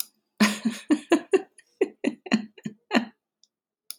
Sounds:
Laughter